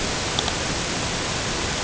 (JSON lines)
{"label": "ambient", "recorder": "HydroMoth"}